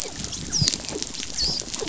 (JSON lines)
{"label": "biophony, dolphin", "recorder": "SoundTrap 500"}